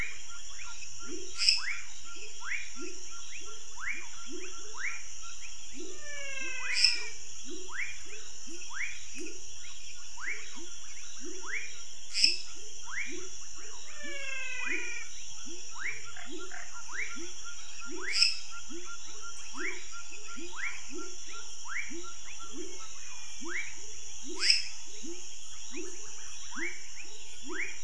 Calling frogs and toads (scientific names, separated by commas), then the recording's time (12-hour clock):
Leptodactylus fuscus, Leptodactylus labyrinthicus, Dendropsophus minutus, Physalaemus albonotatus, Physalaemus nattereri
8:30pm